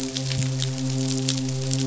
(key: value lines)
label: biophony, midshipman
recorder: SoundTrap 500